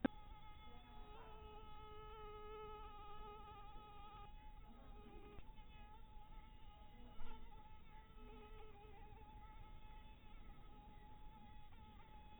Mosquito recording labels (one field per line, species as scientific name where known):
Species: mosquito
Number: one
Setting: cup